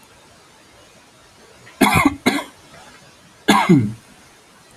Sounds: Cough